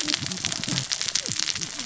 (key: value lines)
label: biophony, cascading saw
recorder: SoundTrap 600 or HydroMoth